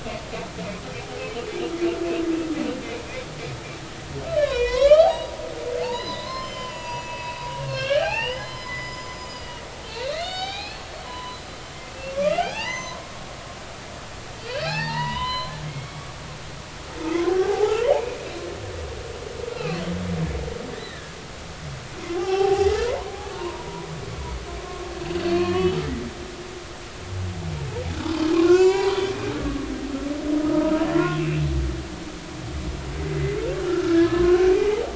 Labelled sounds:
4.4	5.4	humpback whale, 0.80 to 5.3 kHz
5.8	11.5	humpback whale, 0.80 to 7.3 kHz
12.1	13.3	humpback whale, 0.80 to 6.4 kHz
14.4	16.1	humpback whale, 0.80 to 4.2 kHz
17.2	18.2	humpback whale, 0.80 to 2.5 kHz
19.5	19.8	humpback whale, 1.1 to 2.8 kHz
20.8	21.1	humpback whale, 1.6 to 2.0 kHz
22.0	23.9	humpback whale, 0.80 to 5.6 kHz
25.1	25.8	humpback whale, 2.3 to 4.5 kHz
28.3	29.0	humpback whale, 0.80 to 6.5 kHz
30.4	31.2	humpback whale, 0.96 to 1.5 kHz
33.6	34.8	humpback whale, 0.80 to 2.5 kHz

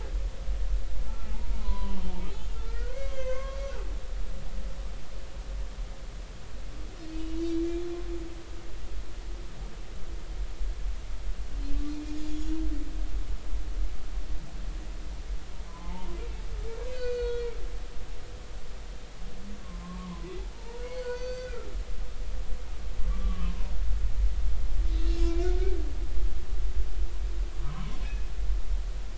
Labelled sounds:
1.1	3.6	humpback whale, 0.80 to 3.3 kHz
11.9	12.6	humpback whale, 2.3 to 3.5 kHz
15.7	16.2	humpback whale, 0.80 to 1.1 kHz
16.9	17.5	humpback whale, 1.4 to 5.0 kHz
19.6	21.7	humpback whale, 0.86 to 6.1 kHz
23.1	23.5	humpback whale, 1.0 to 1.3 kHz
25.1	25.8	humpback whale, 1.4 to 5.4 kHz
27.6	28.3	humpback whale, 0.93 to 2.6 kHz

